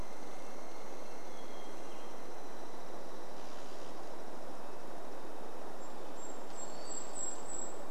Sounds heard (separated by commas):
Hermit Thrush song, Red-breasted Nuthatch song, tree creak, Hermit Thrush call, Douglas squirrel rattle, Golden-crowned Kinglet song